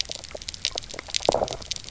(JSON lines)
{"label": "biophony, knock croak", "recorder": "SoundTrap 300"}